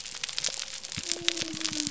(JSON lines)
{"label": "biophony", "recorder": "SoundTrap 300"}